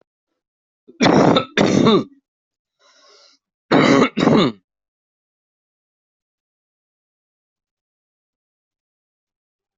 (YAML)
expert_labels:
- quality: ok
  cough_type: unknown
  dyspnea: false
  wheezing: false
  stridor: false
  choking: false
  congestion: false
  nothing: true
  diagnosis: upper respiratory tract infection
  severity: mild